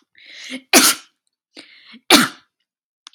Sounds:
Sneeze